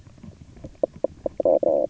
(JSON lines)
{"label": "biophony, knock croak", "recorder": "SoundTrap 300"}